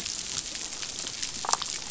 {"label": "biophony, damselfish", "recorder": "SoundTrap 500"}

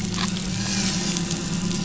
{"label": "anthrophony, boat engine", "recorder": "SoundTrap 500"}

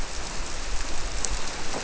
{"label": "biophony", "recorder": "SoundTrap 300"}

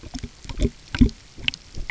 {"label": "geophony, waves", "recorder": "SoundTrap 300"}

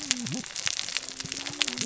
{"label": "biophony, cascading saw", "recorder": "SoundTrap 600 or HydroMoth"}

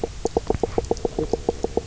{"label": "biophony, knock croak", "recorder": "SoundTrap 300"}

